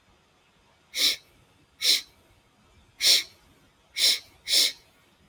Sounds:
Sniff